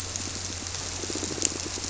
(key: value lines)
label: biophony
recorder: SoundTrap 300